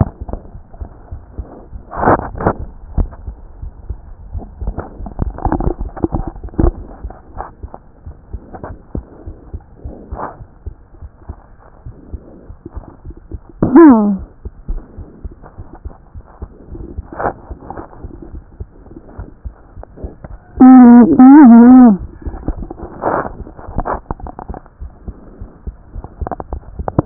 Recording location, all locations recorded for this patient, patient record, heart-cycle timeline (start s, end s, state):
aortic valve (AV)
aortic valve (AV)+pulmonary valve (PV)+tricuspid valve (TV)+tricuspid valve (TV)+mitral valve (MV)
#Age: Child
#Sex: Male
#Height: 107.0 cm
#Weight: 18.2 kg
#Pregnancy status: False
#Murmur: Absent
#Murmur locations: nan
#Most audible location: nan
#Systolic murmur timing: nan
#Systolic murmur shape: nan
#Systolic murmur grading: nan
#Systolic murmur pitch: nan
#Systolic murmur quality: nan
#Diastolic murmur timing: nan
#Diastolic murmur shape: nan
#Diastolic murmur grading: nan
#Diastolic murmur pitch: nan
#Diastolic murmur quality: nan
#Outcome: Normal
#Campaign: 2014 screening campaign
0.00	8.04	unannotated
8.04	8.16	S1
8.16	8.32	systole
8.32	8.42	S2
8.42	8.66	diastole
8.66	8.78	S1
8.78	8.94	systole
8.94	9.04	S2
9.04	9.26	diastole
9.26	9.38	S1
9.38	9.52	systole
9.52	9.62	S2
9.62	9.84	diastole
9.84	9.94	S1
9.94	10.12	systole
10.12	10.20	S2
10.20	10.39	diastole
10.39	10.48	S1
10.48	10.65	systole
10.65	10.73	S2
10.73	11.00	diastole
11.00	11.11	S1
11.11	11.29	systole
11.29	11.37	S2
11.37	11.61	diastole
11.61	27.06	unannotated